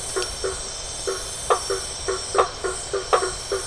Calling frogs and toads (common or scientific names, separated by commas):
blacksmith tree frog